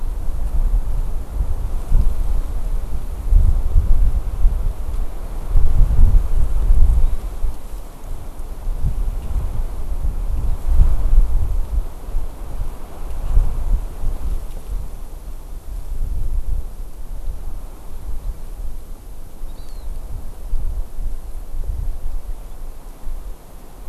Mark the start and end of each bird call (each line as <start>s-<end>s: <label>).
19.5s-19.9s: Hawaii Amakihi (Chlorodrepanis virens)